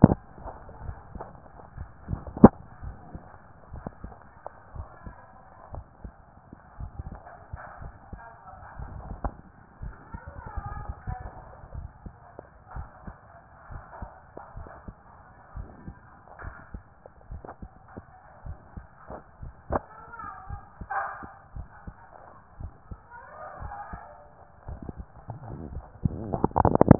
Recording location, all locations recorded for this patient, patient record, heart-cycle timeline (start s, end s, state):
tricuspid valve (TV)
aortic valve (AV)+pulmonary valve (PV)+tricuspid valve (TV)+mitral valve (MV)
#Age: Child
#Sex: Male
#Height: 145.0 cm
#Weight: 51.8 kg
#Pregnancy status: False
#Murmur: Absent
#Murmur locations: nan
#Most audible location: nan
#Systolic murmur timing: nan
#Systolic murmur shape: nan
#Systolic murmur grading: nan
#Systolic murmur pitch: nan
#Systolic murmur quality: nan
#Diastolic murmur timing: nan
#Diastolic murmur shape: nan
#Diastolic murmur grading: nan
#Diastolic murmur pitch: nan
#Diastolic murmur quality: nan
#Outcome: Abnormal
#Campaign: 2014 screening campaign
0.00	2.82	unannotated
2.82	2.96	S1
2.96	3.12	systole
3.12	3.22	S2
3.22	3.72	diastole
3.72	3.84	S1
3.84	4.04	systole
4.04	4.14	S2
4.14	4.76	diastole
4.76	4.88	S1
4.88	5.06	systole
5.06	5.14	S2
5.14	5.72	diastole
5.72	5.84	S1
5.84	6.04	systole
6.04	6.12	S2
6.12	6.80	diastole
6.80	6.92	S1
6.92	7.08	systole
7.08	7.18	S2
7.18	7.80	diastole
7.80	7.94	S1
7.94	8.12	systole
8.12	8.20	S2
8.20	8.79	diastole
8.79	8.92	S1
8.92	9.22	systole
9.22	9.32	S2
9.32	9.82	diastole
9.82	9.94	S1
9.94	10.12	systole
10.12	10.20	S2
10.20	10.74	diastole
10.74	26.99	unannotated